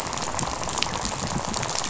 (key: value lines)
label: biophony, rattle
recorder: SoundTrap 500